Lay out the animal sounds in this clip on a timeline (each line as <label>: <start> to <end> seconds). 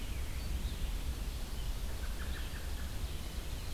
Red-eyed Vireo (Vireo olivaceus): 0.4 to 3.7 seconds
American Robin (Turdus migratorius): 1.7 to 3.4 seconds